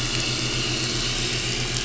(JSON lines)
{"label": "anthrophony, boat engine", "recorder": "SoundTrap 500"}